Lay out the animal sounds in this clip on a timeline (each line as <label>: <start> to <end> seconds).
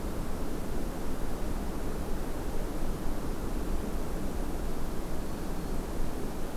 Black-throated Green Warbler (Setophaga virens): 5.0 to 5.9 seconds